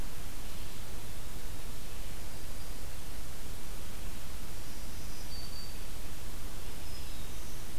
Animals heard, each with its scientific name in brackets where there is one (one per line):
Black-throated Green Warbler (Setophaga virens)